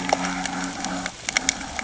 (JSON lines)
{"label": "anthrophony, boat engine", "recorder": "HydroMoth"}